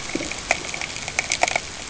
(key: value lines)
label: ambient
recorder: HydroMoth